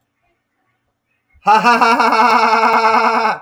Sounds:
Laughter